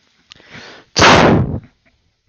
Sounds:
Sneeze